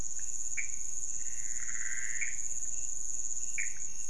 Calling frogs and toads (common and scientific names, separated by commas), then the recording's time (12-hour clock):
Pithecopus azureus
4:00am